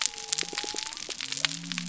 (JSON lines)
{"label": "biophony", "recorder": "SoundTrap 300"}